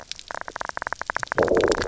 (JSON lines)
{"label": "biophony", "recorder": "SoundTrap 300"}